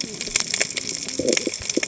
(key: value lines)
label: biophony, cascading saw
recorder: HydroMoth